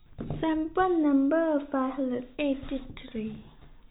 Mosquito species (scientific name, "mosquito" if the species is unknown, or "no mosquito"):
no mosquito